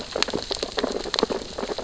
{"label": "biophony, sea urchins (Echinidae)", "recorder": "SoundTrap 600 or HydroMoth"}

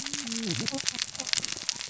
{"label": "biophony, cascading saw", "recorder": "SoundTrap 600 or HydroMoth"}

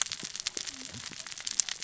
{"label": "biophony, cascading saw", "recorder": "SoundTrap 600 or HydroMoth"}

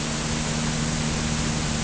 {"label": "anthrophony, boat engine", "recorder": "HydroMoth"}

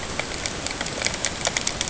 {"label": "ambient", "recorder": "HydroMoth"}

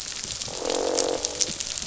{"label": "biophony, croak", "recorder": "SoundTrap 500"}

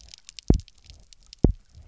{"label": "biophony, double pulse", "recorder": "SoundTrap 300"}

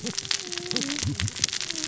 {"label": "biophony, cascading saw", "recorder": "SoundTrap 600 or HydroMoth"}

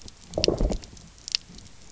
{"label": "biophony, low growl", "recorder": "SoundTrap 300"}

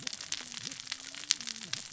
{"label": "biophony, cascading saw", "recorder": "SoundTrap 600 or HydroMoth"}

